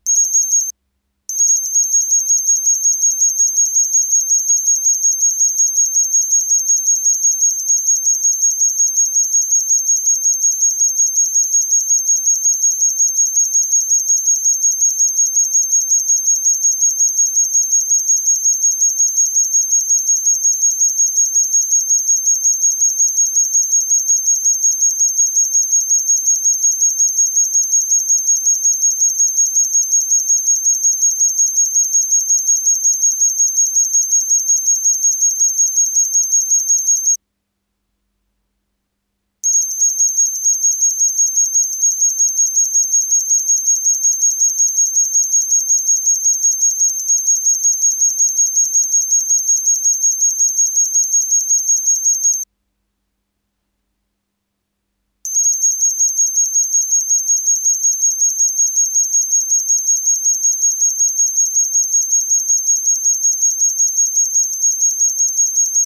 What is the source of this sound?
Gryllodinus kerkennensis, an orthopteran